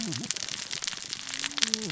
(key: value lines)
label: biophony, cascading saw
recorder: SoundTrap 600 or HydroMoth